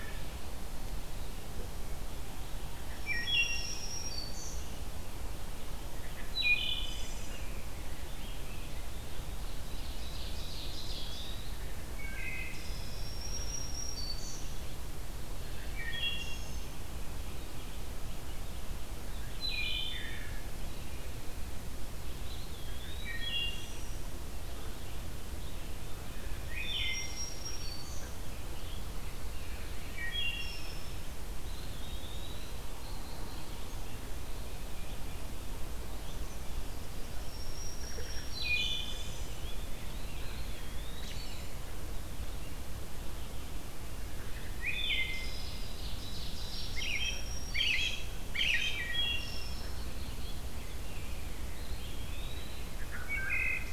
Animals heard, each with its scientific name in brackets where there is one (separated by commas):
American Robin (Turdus migratorius), Black-throated Green Warbler (Setophaga virens), Wood Thrush (Hylocichla mustelina), Eastern Wood-Pewee (Contopus virens), Ovenbird (Seiurus aurocapilla)